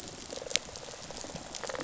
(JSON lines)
{"label": "biophony, rattle response", "recorder": "SoundTrap 500"}